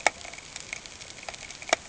{"label": "ambient", "recorder": "HydroMoth"}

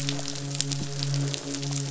{"label": "biophony, midshipman", "recorder": "SoundTrap 500"}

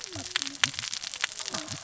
{"label": "biophony, cascading saw", "recorder": "SoundTrap 600 or HydroMoth"}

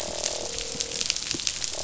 {"label": "biophony, croak", "recorder": "SoundTrap 500"}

